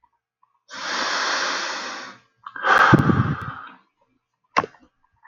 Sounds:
Sigh